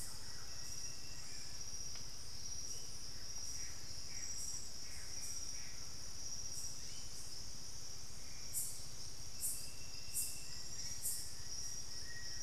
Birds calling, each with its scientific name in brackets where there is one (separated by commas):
Plain-winged Antshrike (Thamnophilus schistaceus), White-bellied Tody-Tyrant (Hemitriccus griseipectus), Thrush-like Wren (Campylorhynchus turdinus), Bluish-fronted Jacamar (Galbula cyanescens)